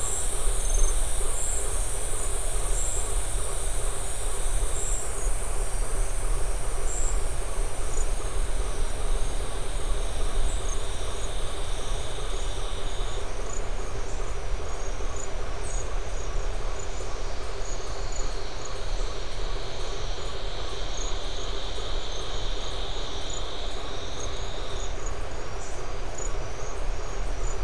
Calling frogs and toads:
Boana faber
6:45pm

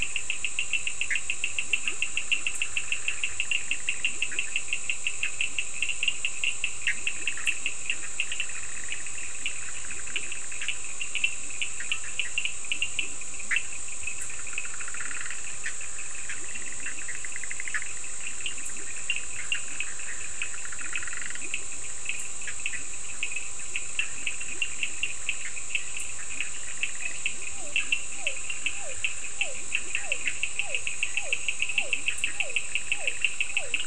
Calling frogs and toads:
Boana bischoffi, Sphaenorhynchus surdus, Leptodactylus latrans, Physalaemus cuvieri
10:30pm

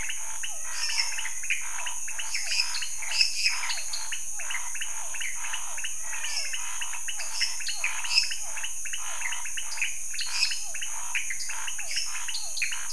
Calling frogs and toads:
Leptodactylus podicipinus, Physalaemus cuvieri, Scinax fuscovarius, Physalaemus albonotatus, Dendropsophus minutus, Dendropsophus nanus
11:00pm

